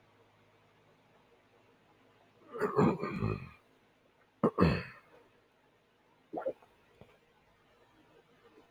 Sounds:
Throat clearing